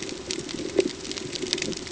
{"label": "ambient", "recorder": "HydroMoth"}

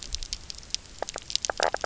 {"label": "biophony, knock croak", "recorder": "SoundTrap 300"}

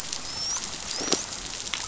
{"label": "biophony, dolphin", "recorder": "SoundTrap 500"}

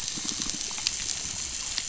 {"label": "biophony", "recorder": "SoundTrap 500"}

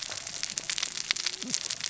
{"label": "biophony, cascading saw", "recorder": "SoundTrap 600 or HydroMoth"}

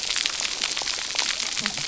{"label": "biophony, cascading saw", "recorder": "SoundTrap 300"}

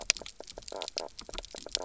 {"label": "biophony, knock croak", "recorder": "SoundTrap 300"}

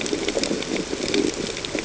{"label": "ambient", "recorder": "HydroMoth"}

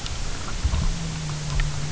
{"label": "anthrophony, boat engine", "recorder": "SoundTrap 300"}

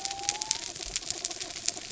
{"label": "biophony", "recorder": "SoundTrap 300"}
{"label": "anthrophony, mechanical", "recorder": "SoundTrap 300"}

